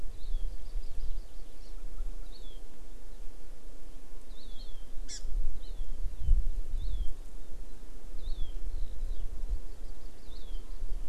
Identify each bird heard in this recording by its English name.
Hawaii Amakihi